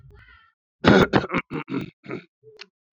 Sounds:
Throat clearing